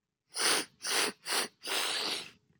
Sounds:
Sniff